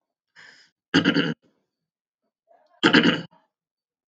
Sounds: Throat clearing